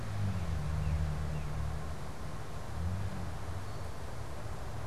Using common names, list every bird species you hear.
unidentified bird, Red-winged Blackbird